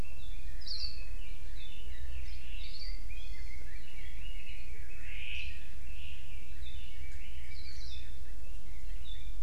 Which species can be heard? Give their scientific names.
Leiothrix lutea, Loxops coccineus, Chlorodrepanis virens